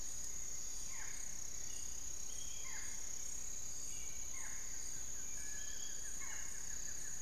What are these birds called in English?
Barred Forest-Falcon, Piratic Flycatcher, Long-winged Antwren, Buff-throated Woodcreeper, Little Tinamou